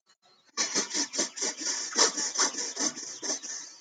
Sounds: Sniff